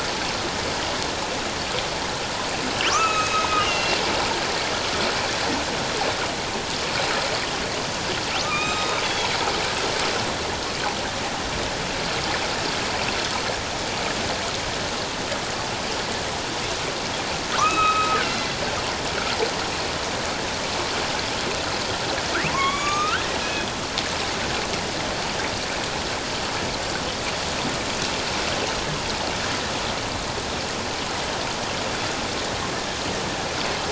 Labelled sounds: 2.9	4.0	killer whale, northern resident, A clan, AB subclan, H01 pod, 1.1 to 3.0 kHz
8.4	9.3	killer whale, northern resident, A clan, AB subclan, H01 pod, 0.97 to 3.8 kHz
17.5	18.5	killer whale, northern resident, A clan, AB subclan, H01 pod, 1.0 to 3.9 kHz
22.5	23.7	killer whale, northern resident, A clan, AB subclan, H01 pod, 0.94 to 6.9 kHz

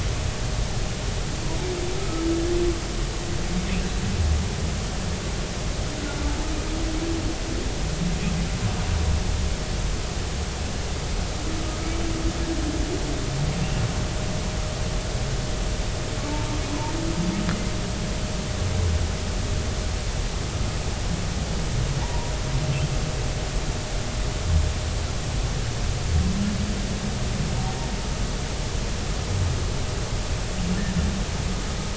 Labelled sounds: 2.0	2.2	humpback whale, 1.2 to 1.3 kHz
22.0	22.3	humpback whale, 0.83 to 1.1 kHz

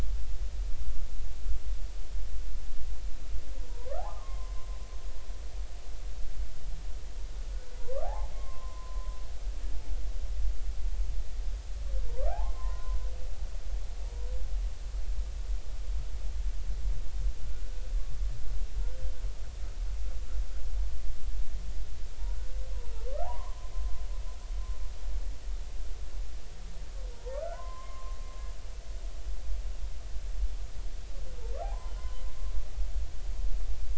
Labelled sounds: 3.7	4.6	humpback whale, 0.80 to 1.5 kHz
7.8	9.2	humpback whale, 0.80 to 2.2 kHz
12.1	13.0	humpback whale, 0.80 to 1.7 kHz
23.2	23.7	humpback whale, 0.80 to 1.2 kHz
27.1	28.2	humpback whale, 0.86 to 1.5 kHz
31.6	32.2	humpback whale, 0.80 to 1.1 kHz

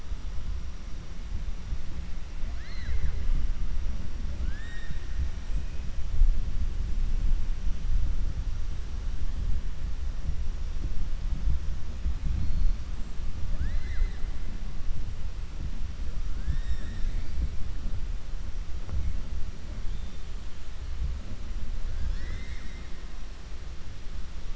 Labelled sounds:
21.9	22.9	killer whale, 1.3 to 7.9 kHz

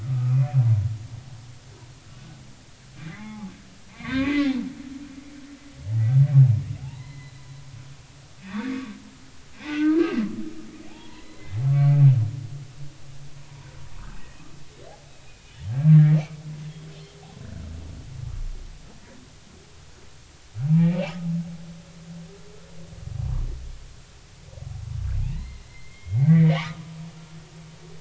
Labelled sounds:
0.0	0.6	humpback whale, 1.1 to 2.5 kHz
3.1	4.5	humpback whale, 0.80 to 2.6 kHz
6.8	7.5	humpback whale, 0.80 to 4.2 kHz
8.7	8.9	humpback whale, 1.1 to 1.3 kHz
9.5	10.2	humpback whale, 1.2 to 2.7 kHz
10.9	12.0	humpback whale, 0.80 to 2.3 kHz
13.4	13.7	humpback whale, 0.90 to 1.1 kHz
15.2	16.2	humpback whale, 1.6 to 2.5 kHz
20.6	21.2	humpback whale, 0.80 to 2.8 kHz
25.3	26.8	humpback whale, 0.80 to 4.3 kHz

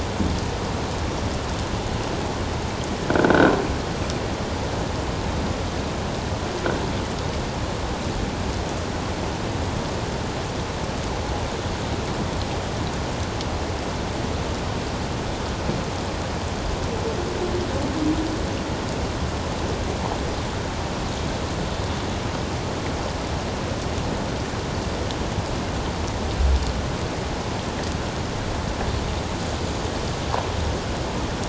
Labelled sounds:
3.2	3.5	croaking sound likely from a nearby submerged object, 1.3 to 1.6 kHz

